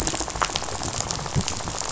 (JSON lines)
{"label": "biophony, rattle", "recorder": "SoundTrap 500"}